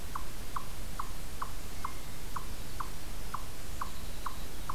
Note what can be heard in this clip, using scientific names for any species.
Tamias striatus